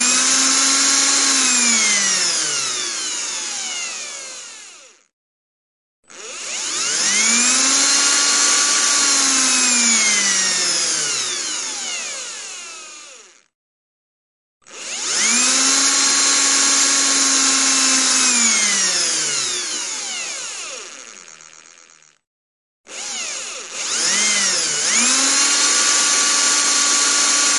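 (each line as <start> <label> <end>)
0.0 An electric drill is whirring. 5.2
6.0 An electric drill is whirring. 13.8
14.5 An electric drill is whirring. 27.6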